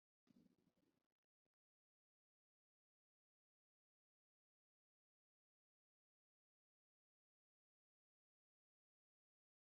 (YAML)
expert_labels:
- quality: no cough present
  dyspnea: false
  wheezing: false
  stridor: false
  choking: false
  congestion: false
  nothing: false